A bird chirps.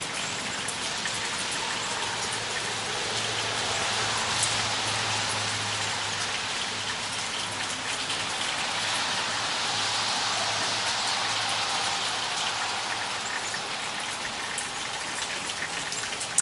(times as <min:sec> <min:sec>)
0:12.8 0:16.4